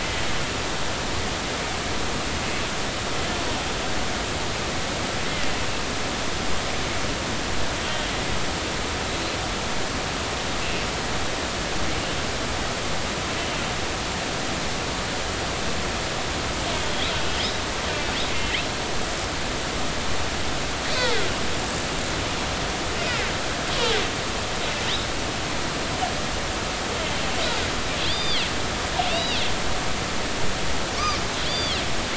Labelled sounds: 16.9	17.1	killer whale, northern resident, A clan, AB subclan, 3.1 to 4.1 kHz
28.1	29.5	killer whale, northern resident, A clan, AB subclan, 2.5 to 5.0 kHz
31.5	31.8	killer whale, northern resident, A clan, AB subclan, 3.0 to 4.8 kHz

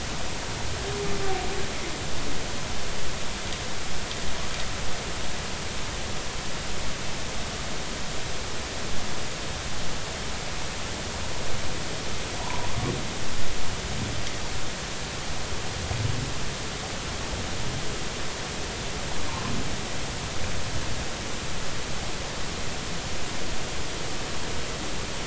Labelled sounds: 12.4	12.7	humpback whale, 0.83 to 1.1 kHz

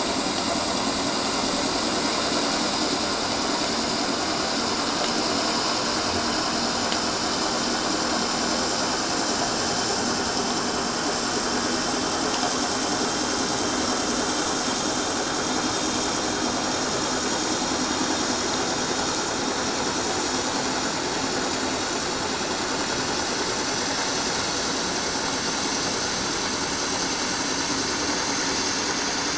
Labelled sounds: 19.5	19.8	vessel noise, 5.8 to 6.1 kHz
20.3	20.6	vessel noise, 5.8 to 6.1 kHz

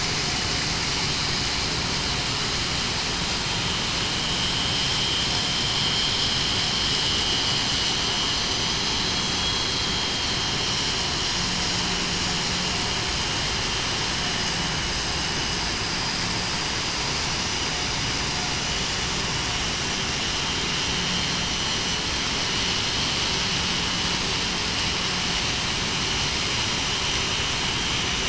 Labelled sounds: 8.3	8.9	vessel noise, 5.9 to 6.1 kHz
9.3	10.3	vessel noise, 3.2 to 3.4 kHz

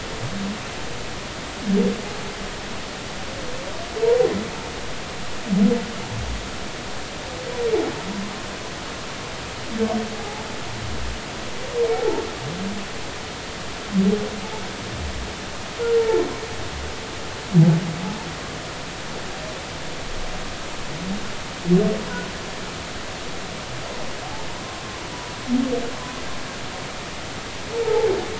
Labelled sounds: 11.9	12.2	humpback whale, 0.80 to 0.96 kHz
27.8	28.1	humpback whale, 0.80 to 0.96 kHz

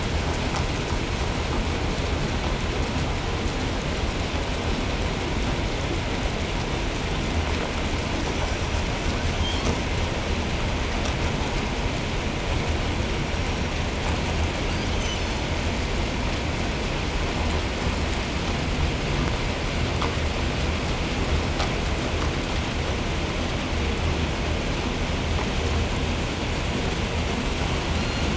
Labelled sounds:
8.1	9.0	killer whale, 5.5 to 6.2 kHz
9.2	9.9	killer whale, 2.4 to 8.0 kHz
13.0	13.8	killer whale, 5.3 to 6.0 kHz
14.6	15.6	killer whale, southern resident, 0.96 to 8.0 kHz
27.8	28.3	killer whale, 0.90 to 4.8 kHz

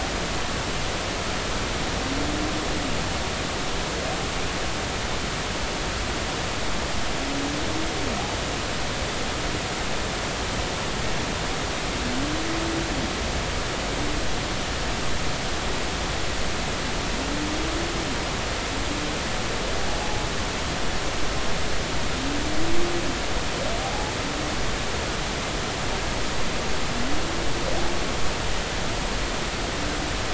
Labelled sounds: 23.8	24.1	humpback whale, 0.80 to 0.90 kHz

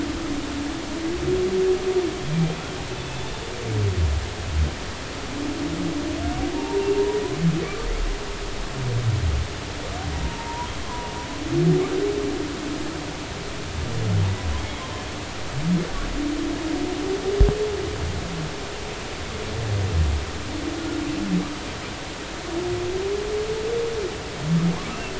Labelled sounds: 3.2	3.4	humpback whale, 3.5 to 3.6 kHz
6.5	6.9	humpback whale, 0.80 to 0.99 kHz
10.4	11.1	humpback whale, 0.86 to 1.1 kHz
24.9	25.1	humpback whale, 2.6 to 2.8 kHz

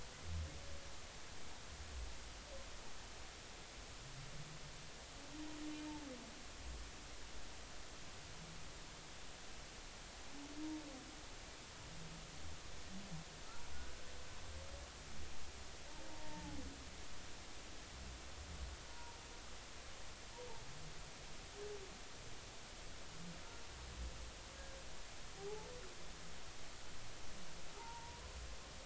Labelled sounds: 16.1	16.6	humpback whale, 0.80 to 1.9 kHz
18.9	19.2	humpback whale, 0.90 to 0.99 kHz
25.4	25.7	humpback whale, 0.80 to 0.93 kHz
27.7	28.2	humpback whale, 0.80 to 0.99 kHz

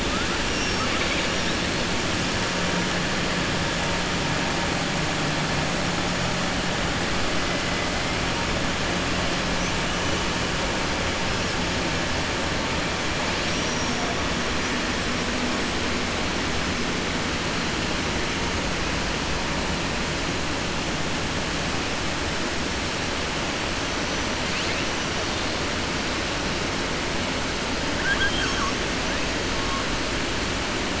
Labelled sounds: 0.4	1.3	killer whale, southern resident, 1.1 to 6.2 kHz
13.3	14.0	killer whale, southern resident, 4.6 to 6.2 kHz
27.9	28.8	killer whale, southern resident, 1.1 to 6.7 kHz

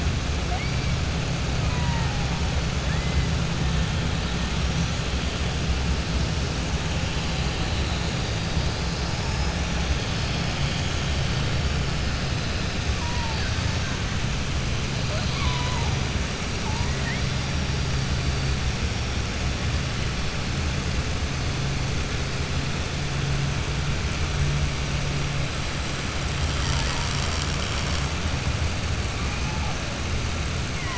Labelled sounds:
1.6	2.2	killer whale, 0.82 to 2.9 kHz
2.8	3.2	killer whale, 1.5 to 3.0 kHz
15.0	15.9	killer whale, 0.61 to 5.2 kHz

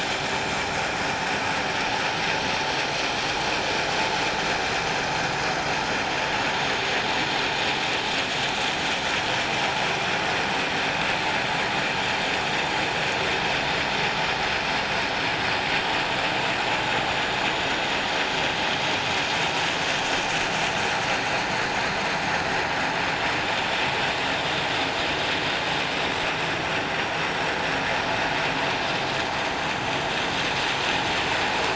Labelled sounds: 1.3	1.6	vessel noise, 7.5 to 7.9 kHz

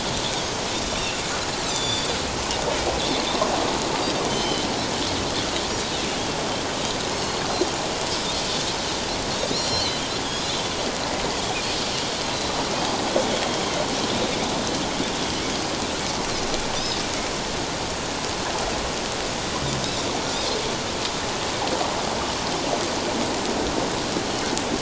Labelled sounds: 1.7	2.2	Pacific white-sided dolphin, 3.4 to 7.5 kHz
4.3	4.6	Pacific white-sided dolphin, 3.0 to 6.2 kHz
7.1	7.4	Pacific white-sided dolphin, 4.2 to 4.4 kHz
9.5	10.5	Pacific white-sided dolphin, 2.9 to 7.1 kHz

